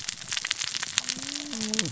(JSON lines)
{"label": "biophony, cascading saw", "recorder": "SoundTrap 600 or HydroMoth"}